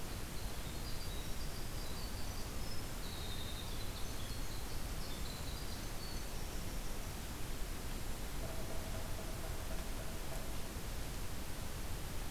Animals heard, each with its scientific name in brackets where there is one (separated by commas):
Winter Wren (Troglodytes hiemalis), Yellow-bellied Sapsucker (Sphyrapicus varius)